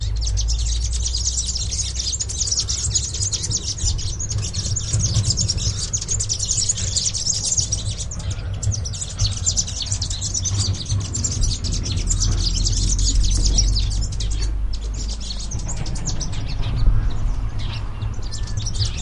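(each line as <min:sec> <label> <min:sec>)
0:00.0 Birds chirp continuously and repeatedly at a high pitch outdoors. 0:19.0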